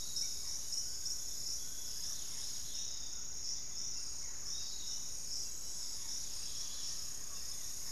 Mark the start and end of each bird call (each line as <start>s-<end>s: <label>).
0.0s-7.9s: Barred Forest-Falcon (Micrastur ruficollis)
0.0s-7.9s: Dusky-capped Greenlet (Pachysylvia hypoxantha)
0.0s-7.9s: Piratic Flycatcher (Legatus leucophaius)
0.5s-2.3s: Fasciated Antshrike (Cymbilaimus lineatus)
5.4s-7.9s: Thrush-like Wren (Campylorhynchus turdinus)